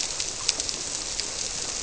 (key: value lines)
label: biophony
recorder: SoundTrap 300